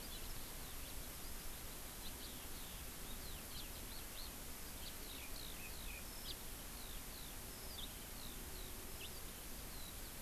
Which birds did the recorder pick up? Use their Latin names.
Alauda arvensis, Haemorhous mexicanus, Garrulax canorus